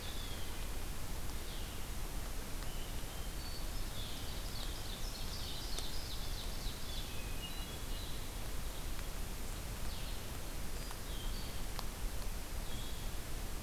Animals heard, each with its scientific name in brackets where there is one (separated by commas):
Blue Jay (Cyanocitta cristata), Blue-headed Vireo (Vireo solitarius), Ovenbird (Seiurus aurocapilla), Hermit Thrush (Catharus guttatus)